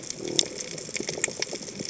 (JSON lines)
{"label": "biophony", "recorder": "HydroMoth"}